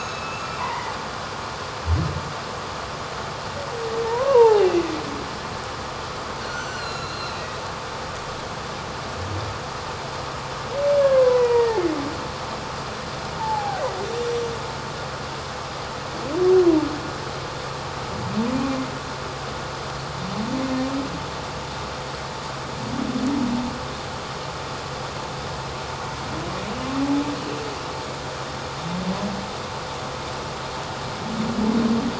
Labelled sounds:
4.0	4.7	humpback whale, 0.78 to 1.2 kHz
6.4	7.6	humpback whale, 1.2 to 7.6 kHz
11.0	11.8	humpback whale, 0.91 to 2.0 kHz
13.4	13.8	humpback whale, 0.78 to 0.97 kHz

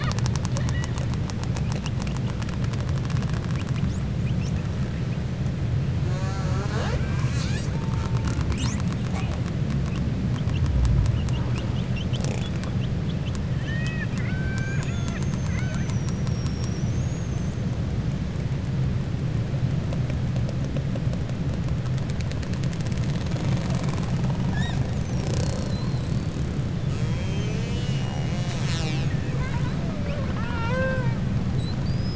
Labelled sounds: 13.5	15.3	killer whale, 0.93 to 3.9 kHz
29.8	31.2	killer whale, 0.51 to 4.2 kHz

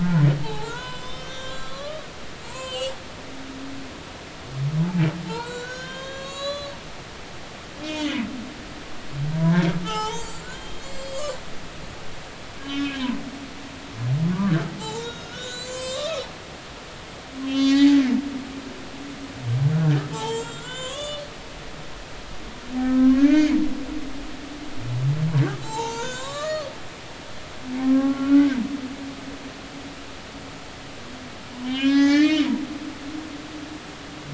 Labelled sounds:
0.0	2.9	humpback whale, 0.80 to 7.9 kHz
5.2	6.8	humpback whale, 0.83 to 7.5 kHz
7.8	8.2	humpback whale, 1.9 to 3.4 kHz
9.3	11.3	humpback whale, 0.80 to 8.0 kHz
12.6	13.0	humpback whale, 1.6 to 3.2 kHz
14.8	16.2	humpback whale, 0.80 to 8.0 kHz
17.5	18.0	humpback whale, 0.80 to 7.5 kHz
20.1	21.2	humpback whale, 0.83 to 8.0 kHz
22.8	23.6	humpback whale, 0.99 to 2.5 kHz
25.6	26.7	humpback whale, 0.80 to 6.8 kHz
27.8	28.5	humpback whale, 0.99 to 1.5 kHz
31.6	32.5	humpback whale, 0.80 to 6.4 kHz

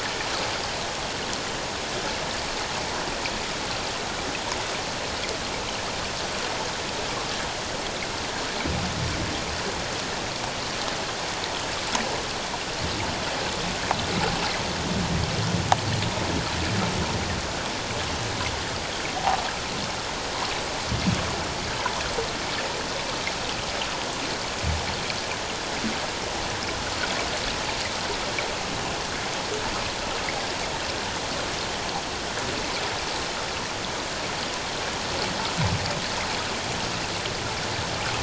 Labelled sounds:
19.2	19.4	water noise, 0.78 to 1.1 kHz

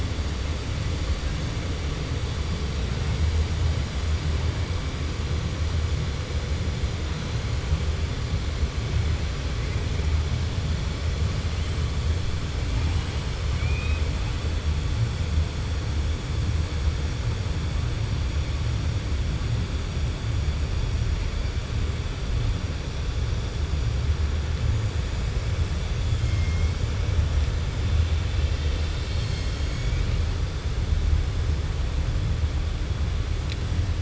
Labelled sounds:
13.5	14.0	killer whale, 1.5 to 3.8 kHz

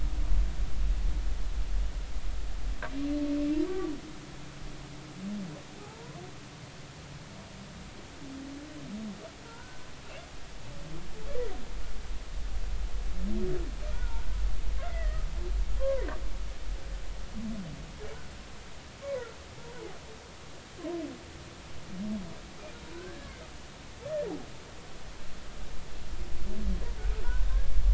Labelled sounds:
5.8	6.2	humpback whale, 0.80 to 1.1 kHz
9.4	9.8	humpback whale, 1.3 to 1.6 kHz
13.9	15.2	humpback whale, 0.86 to 2.2 kHz
15.8	16.1	humpback whale, 0.93 to 1.2 kHz
19.0	19.3	humpback whale, 0.93 to 1.2 kHz
23.9	24.3	humpback whale, 1.4 to 1.8 kHz

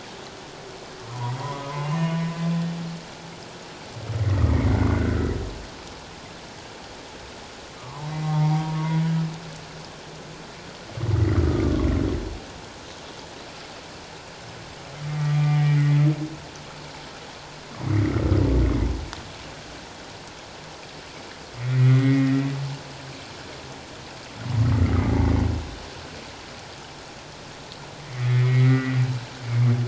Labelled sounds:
1.1	2.2	humpback whale, 0.88 to 3.0 kHz
4.1	5.3	humpback whale, 1.2 to 2.3 kHz
7.8	9.1	humpback whale, 0.78 to 2.2 kHz
11.3	11.9	humpback whale, 1.0 to 1.4 kHz
15.2	16.0	humpback whale, 1.1 to 2.5 kHz
21.6	22.6	humpback whale, 1.8 to 2.2 kHz
28.1	29.0	humpback whale, 1.8 to 2.3 kHz

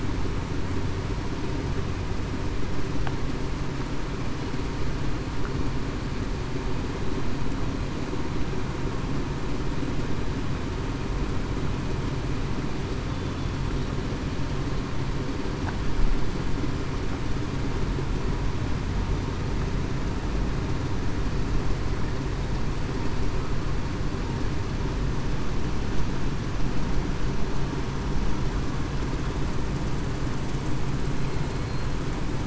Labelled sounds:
31.5	31.9	killer whale, southern resident, 4.17 to 4.24 kHz

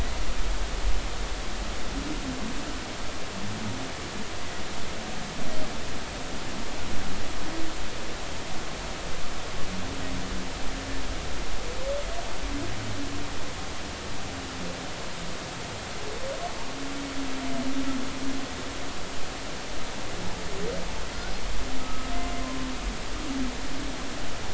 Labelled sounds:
21.8	22.1	humpback whale, 1.2 to 1.3 kHz

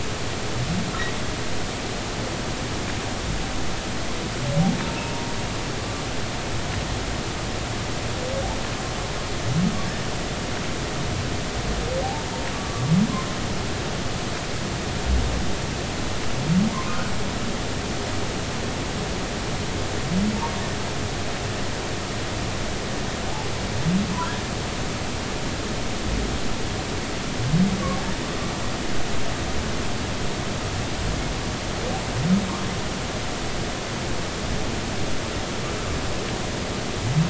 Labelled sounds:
12.5	12.9	humpback whale, 1.1 to 1.2 kHz
16.7	17.0	humpback whale, 0.96 to 1.2 kHz

